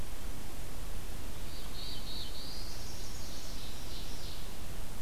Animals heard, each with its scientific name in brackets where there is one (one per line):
Ovenbird (Seiurus aurocapilla)
Black-throated Blue Warbler (Setophaga caerulescens)
Chestnut-sided Warbler (Setophaga pensylvanica)